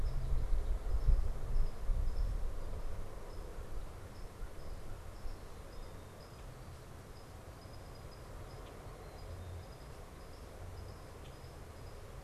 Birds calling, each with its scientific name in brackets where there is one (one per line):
Common Grackle (Quiscalus quiscula)